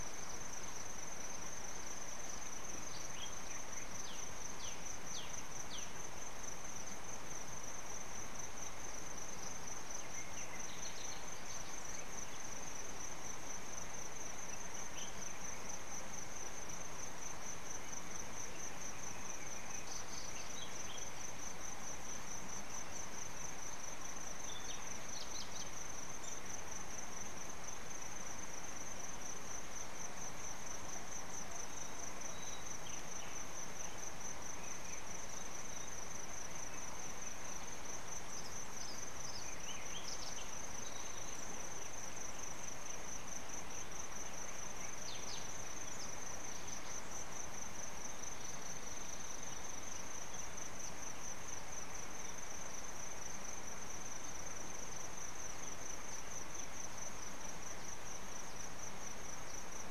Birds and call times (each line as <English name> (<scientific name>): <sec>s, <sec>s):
Black-backed Puffback (Dryoscopus cubla): 4.6s, 5.7s